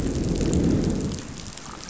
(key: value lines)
label: biophony, growl
recorder: SoundTrap 500